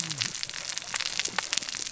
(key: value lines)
label: biophony, cascading saw
recorder: SoundTrap 600 or HydroMoth